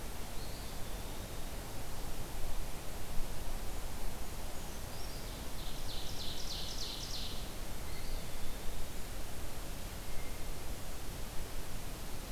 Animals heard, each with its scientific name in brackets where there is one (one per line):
Eastern Wood-Pewee (Contopus virens)
Brown Creeper (Certhia americana)
Ovenbird (Seiurus aurocapilla)